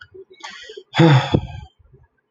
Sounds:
Sigh